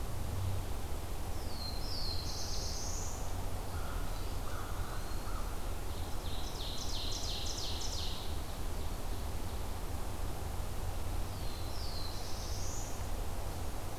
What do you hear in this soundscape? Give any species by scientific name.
Setophaga caerulescens, Corvus brachyrhynchos, Contopus virens, Seiurus aurocapilla